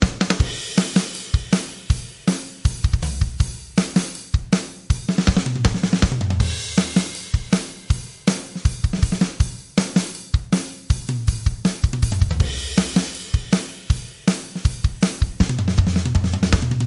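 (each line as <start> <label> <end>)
0.0 A rhythmic hi-hat beat produced by a drum set. 16.9
0.0 A snare drum produces a rhythmic beat indoors. 16.9
0.0 Rhythmic drum beat indoors. 16.9
0.4 Cymbals clash powerfully, producing a metallic shimmering tone within a drum set. 1.7
6.3 Cymbals clash powerfully, producing a metallic shimmering tone within a drum set. 7.2
12.3 Cymbals clash powerfully, producing a metallic shimmering tone within a drum set. 13.7
15.3 Rapid rhythmic drumming on a drum set. 16.9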